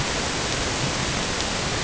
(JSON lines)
{"label": "ambient", "recorder": "HydroMoth"}